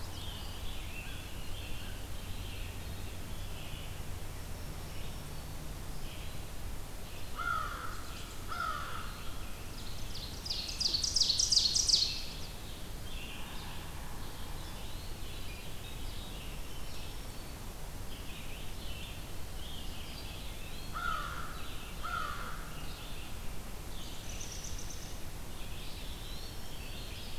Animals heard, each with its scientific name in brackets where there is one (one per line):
Ovenbird (Seiurus aurocapilla)
Chestnut-sided Warbler (Setophaga pensylvanica)
Yellow-bellied Sapsucker (Sphyrapicus varius)
Scarlet Tanager (Piranga olivacea)
Eastern Wood-Pewee (Contopus virens)
Veery (Catharus fuscescens)
American Crow (Corvus brachyrhynchos)
Red-eyed Vireo (Vireo olivaceus)
American Robin (Turdus migratorius)
Black-throated Green Warbler (Setophaga virens)